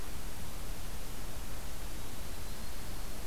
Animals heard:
Yellow-rumped Warbler (Setophaga coronata)

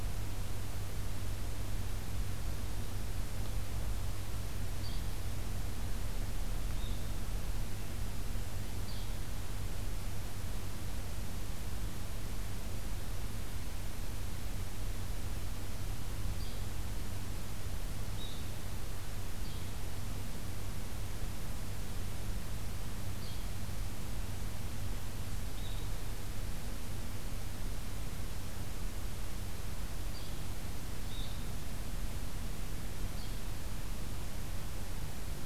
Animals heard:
Yellow-bellied Flycatcher (Empidonax flaviventris), Blue-headed Vireo (Vireo solitarius)

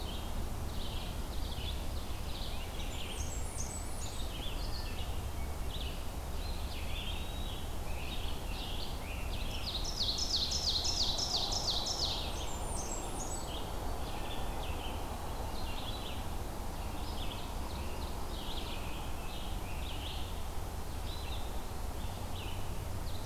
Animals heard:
Red-eyed Vireo (Vireo olivaceus), Ovenbird (Seiurus aurocapilla), Blackburnian Warbler (Setophaga fusca), Eastern Wood-Pewee (Contopus virens), Scarlet Tanager (Piranga olivacea)

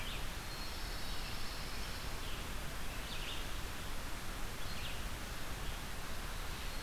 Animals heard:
Pine Warbler (Setophaga pinus), Red-eyed Vireo (Vireo olivaceus), Black-capped Chickadee (Poecile atricapillus)

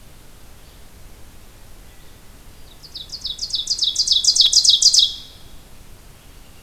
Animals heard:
Red-eyed Vireo (Vireo olivaceus), Ovenbird (Seiurus aurocapilla)

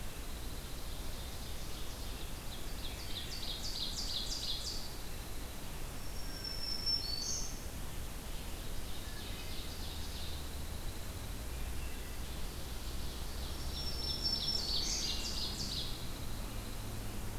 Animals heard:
Black-throated Green Warbler (Setophaga virens), Pine Warbler (Setophaga pinus), Ovenbird (Seiurus aurocapilla)

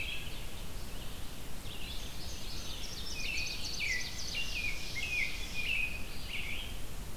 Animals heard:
Ovenbird (Seiurus aurocapilla), American Robin (Turdus migratorius), Indigo Bunting (Passerina cyanea), Red-eyed Vireo (Vireo olivaceus)

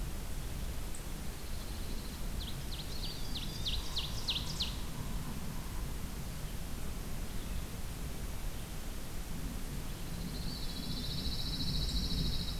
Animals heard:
Eastern Wood-Pewee (Contopus virens), Ovenbird (Seiurus aurocapilla), Pine Warbler (Setophaga pinus)

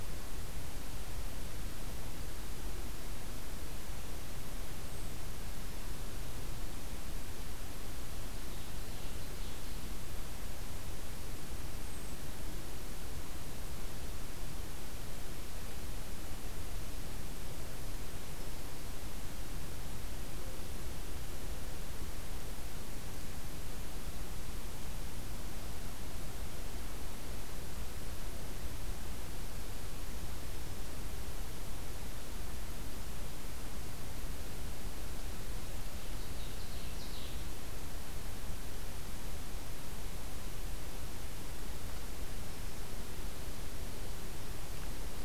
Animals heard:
Ovenbird (Seiurus aurocapilla)

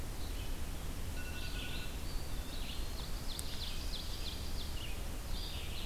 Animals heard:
Ovenbird (Seiurus aurocapilla), Blue Jay (Cyanocitta cristata), Red-eyed Vireo (Vireo olivaceus), Eastern Wood-Pewee (Contopus virens)

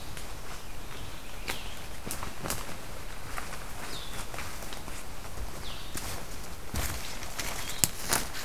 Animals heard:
Blue-headed Vireo (Vireo solitarius)

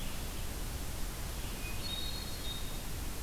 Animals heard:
Hermit Thrush (Catharus guttatus)

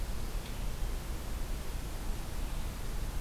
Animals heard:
Red-eyed Vireo (Vireo olivaceus)

